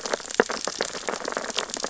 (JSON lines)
{"label": "biophony, sea urchins (Echinidae)", "recorder": "SoundTrap 600 or HydroMoth"}